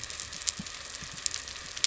{"label": "anthrophony, boat engine", "recorder": "SoundTrap 300"}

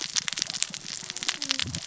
{"label": "biophony, cascading saw", "recorder": "SoundTrap 600 or HydroMoth"}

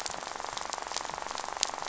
{"label": "biophony, rattle", "recorder": "SoundTrap 500"}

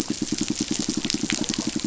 {"label": "biophony, pulse", "recorder": "SoundTrap 500"}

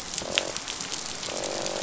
{"label": "biophony, croak", "recorder": "SoundTrap 500"}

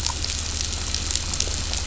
{"label": "anthrophony, boat engine", "recorder": "SoundTrap 500"}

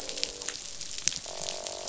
{"label": "biophony, croak", "recorder": "SoundTrap 500"}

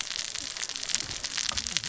{"label": "biophony, cascading saw", "recorder": "SoundTrap 600 or HydroMoth"}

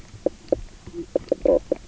{"label": "biophony, knock croak", "recorder": "SoundTrap 300"}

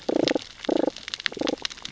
{"label": "biophony, damselfish", "recorder": "SoundTrap 600 or HydroMoth"}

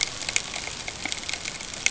{"label": "ambient", "recorder": "HydroMoth"}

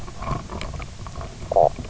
{"label": "biophony, knock croak", "recorder": "SoundTrap 300"}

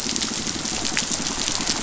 {"label": "biophony, pulse", "recorder": "SoundTrap 500"}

